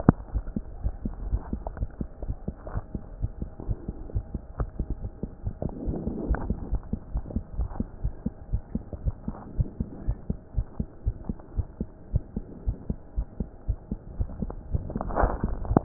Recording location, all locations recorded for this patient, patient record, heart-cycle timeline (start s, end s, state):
aortic valve (AV)
aortic valve (AV)+pulmonary valve (PV)+tricuspid valve (TV)+mitral valve (MV)
#Age: Child
#Sex: Male
#Height: 129.0 cm
#Weight: 26.8 kg
#Pregnancy status: False
#Murmur: Absent
#Murmur locations: nan
#Most audible location: nan
#Systolic murmur timing: nan
#Systolic murmur shape: nan
#Systolic murmur grading: nan
#Systolic murmur pitch: nan
#Systolic murmur quality: nan
#Diastolic murmur timing: nan
#Diastolic murmur shape: nan
#Diastolic murmur grading: nan
#Diastolic murmur pitch: nan
#Diastolic murmur quality: nan
#Outcome: Normal
#Campaign: 2014 screening campaign
0.00	6.23	unannotated
6.23	6.26	diastole
6.26	6.38	S1
6.38	6.46	systole
6.46	6.56	S2
6.56	6.70	diastole
6.70	6.80	S1
6.80	6.92	systole
6.92	7.00	S2
7.00	7.14	diastole
7.14	7.24	S1
7.24	7.34	systole
7.34	7.44	S2
7.44	7.58	diastole
7.58	7.70	S1
7.70	7.78	systole
7.78	7.88	S2
7.88	8.02	diastole
8.02	8.14	S1
8.14	8.24	systole
8.24	8.34	S2
8.34	8.50	diastole
8.50	8.62	S1
8.62	8.74	systole
8.74	8.82	S2
8.82	9.04	diastole
9.04	9.14	S1
9.14	9.26	systole
9.26	9.36	S2
9.36	9.56	diastole
9.56	9.68	S1
9.68	9.80	systole
9.80	9.88	S2
9.88	10.06	diastole
10.06	10.16	S1
10.16	10.28	systole
10.28	10.38	S2
10.38	10.56	diastole
10.56	10.66	S1
10.66	10.78	systole
10.78	10.88	S2
10.88	11.06	diastole
11.06	11.16	S1
11.16	11.28	systole
11.28	11.36	S2
11.36	11.56	diastole
11.56	11.66	S1
11.66	11.80	systole
11.80	11.88	S2
11.88	12.12	diastole
12.12	12.22	S1
12.22	12.36	systole
12.36	12.44	S2
12.44	12.66	diastole
12.66	12.76	S1
12.76	12.88	systole
12.88	12.98	S2
12.98	13.16	diastole
13.16	13.26	S1
13.26	13.38	systole
13.38	13.48	S2
13.48	13.68	diastole
13.68	13.78	S1
13.78	13.90	systole
13.90	14.00	S2
14.00	14.20	diastole
14.20	14.30	S1
14.30	14.40	systole
14.40	14.52	S2
14.52	14.72	diastole
14.72	15.84	unannotated